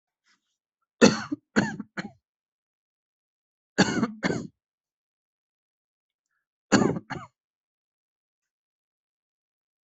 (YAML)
expert_labels:
- quality: good
  cough_type: dry
  dyspnea: false
  wheezing: false
  stridor: false
  choking: false
  congestion: false
  nothing: true
  diagnosis: upper respiratory tract infection
  severity: mild
age: 29
gender: male
respiratory_condition: false
fever_muscle_pain: false
status: symptomatic